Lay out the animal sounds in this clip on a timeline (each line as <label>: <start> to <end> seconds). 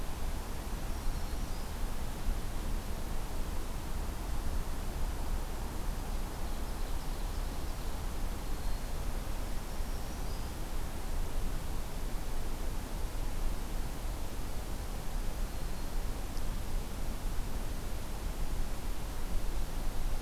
Black-throated Green Warbler (Setophaga virens): 0.4 to 1.8 seconds
Ovenbird (Seiurus aurocapilla): 5.7 to 7.9 seconds
Black-throated Green Warbler (Setophaga virens): 8.2 to 10.7 seconds
Black-throated Green Warbler (Setophaga virens): 15.2 to 16.1 seconds